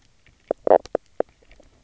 {"label": "biophony, knock croak", "recorder": "SoundTrap 300"}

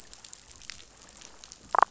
{"label": "biophony, damselfish", "recorder": "SoundTrap 500"}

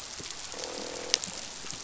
{"label": "biophony, croak", "recorder": "SoundTrap 500"}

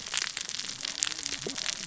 {"label": "biophony, cascading saw", "recorder": "SoundTrap 600 or HydroMoth"}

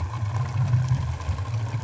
{"label": "anthrophony, boat engine", "recorder": "SoundTrap 500"}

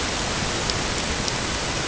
{"label": "ambient", "recorder": "HydroMoth"}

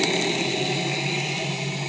{"label": "anthrophony, boat engine", "recorder": "HydroMoth"}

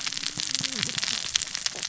{"label": "biophony, cascading saw", "recorder": "SoundTrap 600 or HydroMoth"}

